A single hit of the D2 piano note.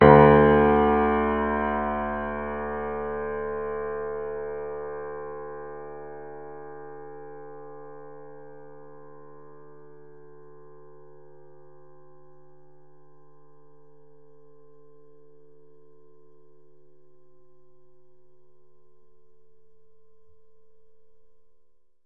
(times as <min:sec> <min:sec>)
0:00.0 0:07.0